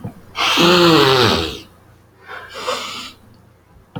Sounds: Sniff